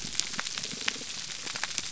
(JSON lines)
{"label": "biophony", "recorder": "SoundTrap 300"}